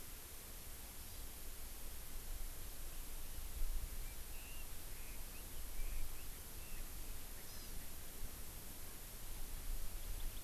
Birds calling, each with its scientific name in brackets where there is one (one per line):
Hawaii Amakihi (Chlorodrepanis virens)
Chinese Hwamei (Garrulax canorus)